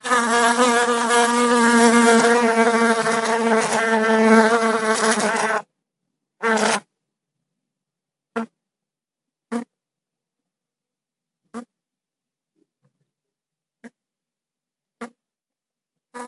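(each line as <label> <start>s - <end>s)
A loud buzzing sound with fluctuating intensity, resembling a bee flying nearby. 0.0s - 6.8s
A faint buzzing sound resembling a bee flying in the distance. 8.3s - 8.5s
A faint buzzing sound resembling a bee flying in the distance. 9.5s - 9.7s
A faint buzzing sound resembling a bee flying in the distance. 11.5s - 11.7s
A faint buzzing sound resembling a bee flying in the distance. 13.8s - 13.9s
A faint buzzing sound resembling a bee flying in the distance. 15.0s - 15.1s
A faint buzzing sound resembling a bee flying in the distance. 16.1s - 16.3s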